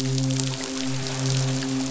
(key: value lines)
label: biophony, midshipman
recorder: SoundTrap 500